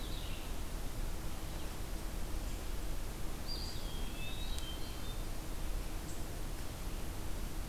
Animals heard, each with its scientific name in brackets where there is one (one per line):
Hermit Thrush (Catharus guttatus)
Eastern Wood-Pewee (Contopus virens)
Red-eyed Vireo (Vireo olivaceus)